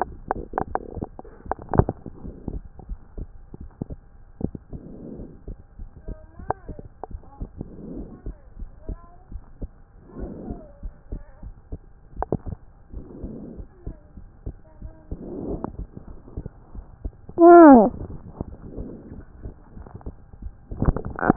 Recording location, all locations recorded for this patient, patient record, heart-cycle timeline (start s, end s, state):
pulmonary valve (PV)
aortic valve (AV)+pulmonary valve (PV)+tricuspid valve (TV)+mitral valve (MV)
#Age: Child
#Sex: Male
#Height: 110.0 cm
#Weight: 20.5 kg
#Pregnancy status: False
#Murmur: Absent
#Murmur locations: nan
#Most audible location: nan
#Systolic murmur timing: nan
#Systolic murmur shape: nan
#Systolic murmur grading: nan
#Systolic murmur pitch: nan
#Systolic murmur quality: nan
#Diastolic murmur timing: nan
#Diastolic murmur shape: nan
#Diastolic murmur grading: nan
#Diastolic murmur pitch: nan
#Diastolic murmur quality: nan
#Outcome: Normal
#Campaign: 2015 screening campaign
0.00	3.37	unannotated
3.37	3.59	diastole
3.59	3.70	S1
3.70	3.90	systole
3.90	3.98	S2
3.98	4.42	diastole
4.42	4.52	S1
4.52	4.72	systole
4.72	4.84	S2
4.84	5.22	diastole
5.22	5.30	S1
5.30	5.48	systole
5.48	5.56	S2
5.56	5.78	diastole
5.78	5.88	S1
5.88	6.08	systole
6.08	6.20	S2
6.20	6.39	diastole
6.39	6.49	S1
6.49	6.67	systole
6.67	6.79	S2
6.79	7.09	diastole
7.09	7.21	S1
7.21	7.36	systole
7.36	7.50	S2
7.50	7.90	diastole
7.90	8.06	S1
8.06	8.24	systole
8.24	8.36	S2
8.36	8.60	diastole
8.60	8.70	S1
8.70	8.88	systole
8.88	8.98	S2
8.98	9.34	diastole
9.34	9.44	S1
9.44	9.62	systole
9.62	9.70	S2
9.70	10.18	diastole
10.18	10.34	S1
10.34	10.48	systole
10.48	10.60	S2
10.60	10.80	diastole
10.80	10.90	S1
10.90	11.10	systole
11.10	11.22	S2
11.22	11.42	diastole
11.42	11.53	S1
11.53	11.70	systole
11.70	11.82	S2
11.82	12.16	diastole
12.16	21.36	unannotated